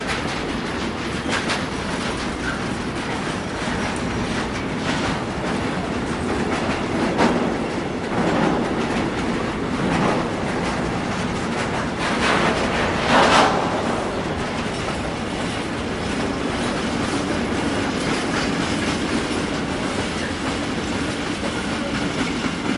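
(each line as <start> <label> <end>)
0.0 A heavy train passes by at medium speed. 22.8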